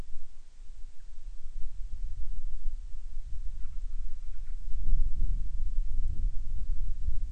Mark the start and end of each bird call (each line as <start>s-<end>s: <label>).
3.5s-4.7s: Band-rumped Storm-Petrel (Hydrobates castro)